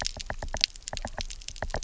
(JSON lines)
{"label": "biophony, knock", "recorder": "SoundTrap 300"}